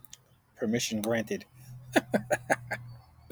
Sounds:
Laughter